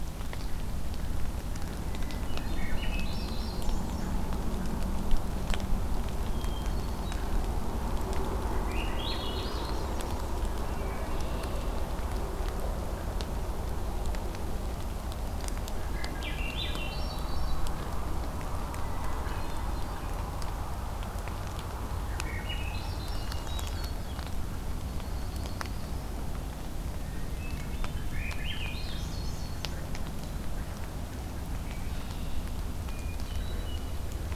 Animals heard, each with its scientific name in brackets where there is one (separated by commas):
Yellow-rumped Warbler (Setophaga coronata), Red-winged Blackbird (Agelaius phoeniceus), Swainson's Thrush (Catharus ustulatus), Hermit Thrush (Catharus guttatus)